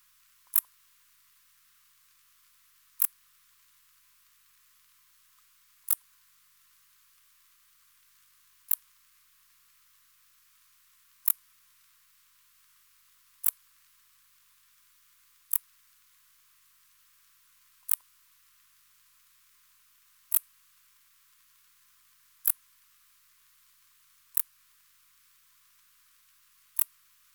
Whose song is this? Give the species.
Pholidoptera griseoaptera